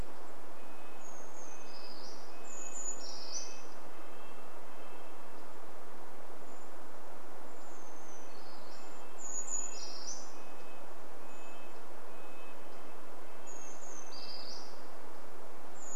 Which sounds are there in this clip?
Brown Creeper song, Red-breasted Nuthatch song, Brown Creeper call